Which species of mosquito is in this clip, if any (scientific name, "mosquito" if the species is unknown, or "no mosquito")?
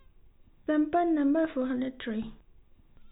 no mosquito